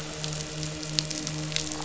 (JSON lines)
{"label": "anthrophony, boat engine", "recorder": "SoundTrap 500"}